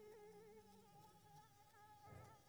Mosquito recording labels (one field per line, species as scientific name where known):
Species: Anopheles squamosus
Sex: female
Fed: unfed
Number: one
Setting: cup